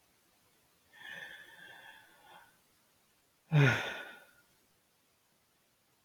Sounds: Sigh